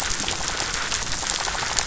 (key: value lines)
label: biophony, rattle
recorder: SoundTrap 500